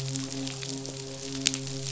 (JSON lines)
{"label": "biophony, midshipman", "recorder": "SoundTrap 500"}